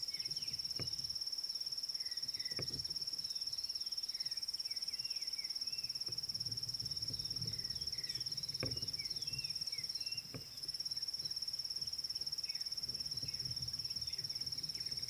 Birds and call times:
African Bare-eyed Thrush (Turdus tephronotus): 2.0s

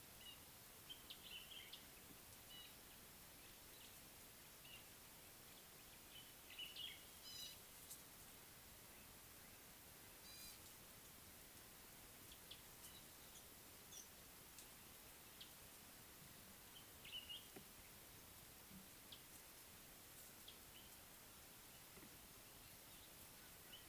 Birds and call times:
Common Bulbul (Pycnonotus barbatus): 1.3s, 17.1s
Gray-backed Camaroptera (Camaroptera brevicaudata): 7.3s

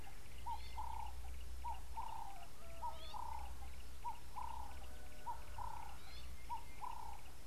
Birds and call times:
Yellow-breasted Apalis (Apalis flavida): 1.8s
Ring-necked Dove (Streptopelia capicola): 2.2s

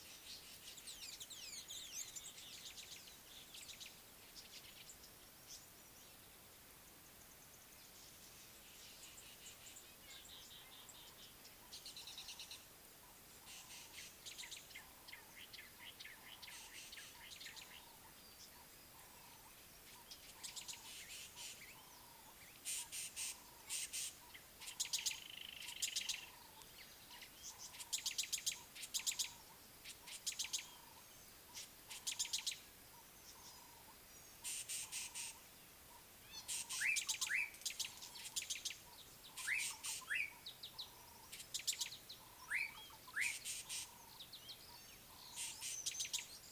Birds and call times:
Rufous Chatterer (Argya rubiginosa): 1.4s
Rattling Cisticola (Cisticola chiniana): 3.7s, 12.2s, 21.0s, 24.9s, 30.3s, 34.8s, 43.5s
Brown-crowned Tchagra (Tchagra australis): 15.6s
Slate-colored Boubou (Laniarius funebris): 39.5s

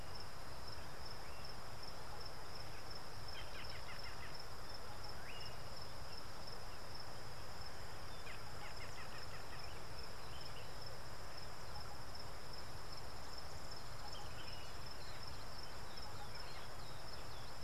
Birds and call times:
Gray-backed Camaroptera (Camaroptera brevicaudata): 3.8s

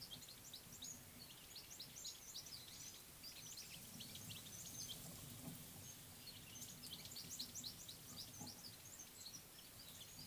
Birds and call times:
Mariqua Sunbird (Cinnyris mariquensis): 1.9s

